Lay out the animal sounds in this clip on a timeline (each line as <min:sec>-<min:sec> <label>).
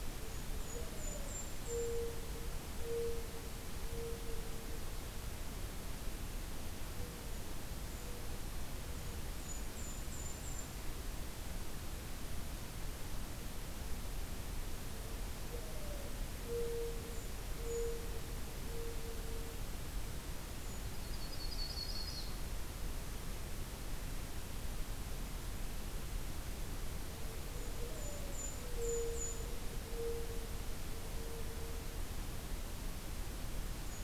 0:00.0-0:02.1 Golden-crowned Kinglet (Regulus satrapa)
0:00.2-0:05.0 Mourning Dove (Zenaida macroura)
0:08.5-0:10.6 Golden-crowned Kinglet (Regulus satrapa)
0:14.9-0:19.9 Mourning Dove (Zenaida macroura)
0:16.8-0:18.1 Golden-crowned Kinglet (Regulus satrapa)
0:20.8-0:22.5 Yellow-rumped Warbler (Setophaga coronata)
0:27.4-0:32.4 Mourning Dove (Zenaida macroura)
0:27.4-0:29.5 Golden-crowned Kinglet (Regulus satrapa)